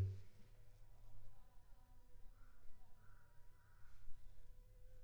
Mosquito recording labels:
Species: Anopheles funestus s.s.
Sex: female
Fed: unfed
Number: one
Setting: cup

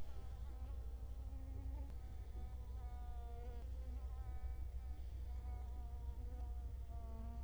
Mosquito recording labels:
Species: Culex quinquefasciatus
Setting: cup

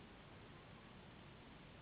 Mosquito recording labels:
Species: Anopheles gambiae s.s.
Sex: female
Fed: unfed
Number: one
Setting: insect culture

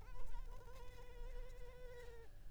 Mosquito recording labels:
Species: Culex pipiens complex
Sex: female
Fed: unfed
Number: one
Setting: cup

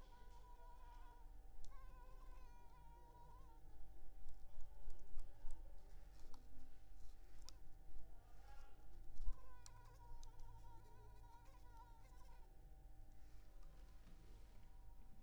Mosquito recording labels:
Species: Culex pipiens complex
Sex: female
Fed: unfed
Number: one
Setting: cup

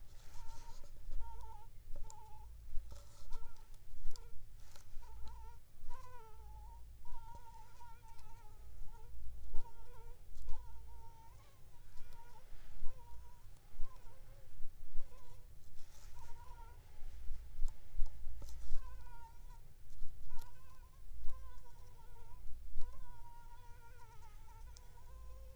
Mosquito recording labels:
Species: Anopheles funestus s.s.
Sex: female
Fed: unfed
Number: one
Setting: cup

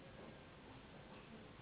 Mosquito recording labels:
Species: Anopheles gambiae s.s.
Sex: female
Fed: unfed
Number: one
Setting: insect culture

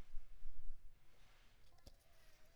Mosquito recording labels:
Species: Mansonia uniformis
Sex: female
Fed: unfed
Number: one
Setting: cup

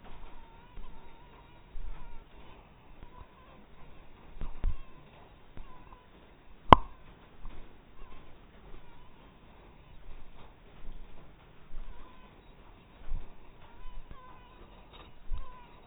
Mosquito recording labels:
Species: mosquito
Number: one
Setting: cup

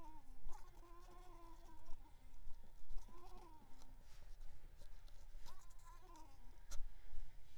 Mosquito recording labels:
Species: Mansonia uniformis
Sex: female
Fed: unfed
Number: one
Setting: cup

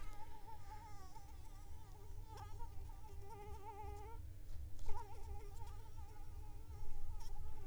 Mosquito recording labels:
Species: Anopheles arabiensis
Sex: female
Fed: unfed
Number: one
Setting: cup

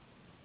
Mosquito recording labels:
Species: Anopheles gambiae s.s.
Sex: female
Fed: unfed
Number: one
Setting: insect culture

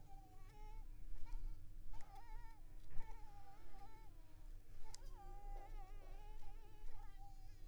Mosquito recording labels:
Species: Anopheles coustani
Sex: female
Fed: unfed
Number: one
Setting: cup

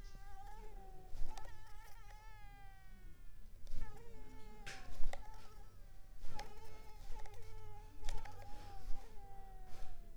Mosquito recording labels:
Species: Mansonia uniformis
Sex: female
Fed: unfed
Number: one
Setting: cup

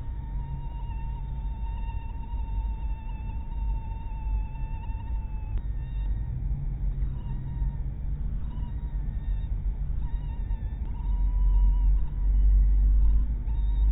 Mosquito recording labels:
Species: mosquito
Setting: cup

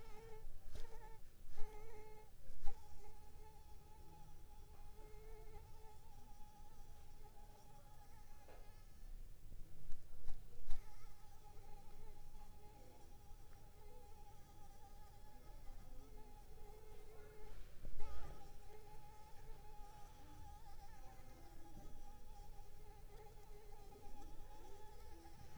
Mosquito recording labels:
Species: Anopheles arabiensis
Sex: female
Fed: unfed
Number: one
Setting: cup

